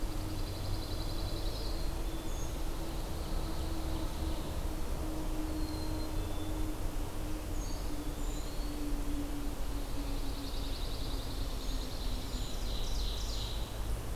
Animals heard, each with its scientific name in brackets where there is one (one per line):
Eastern Wood-Pewee (Contopus virens)
Brown Creeper (Certhia americana)
Ovenbird (Seiurus aurocapilla)
Pine Warbler (Setophaga pinus)
Black-capped Chickadee (Poecile atricapillus)